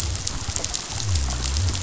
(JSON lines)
{"label": "biophony", "recorder": "SoundTrap 500"}